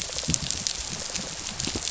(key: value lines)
label: biophony, rattle response
recorder: SoundTrap 500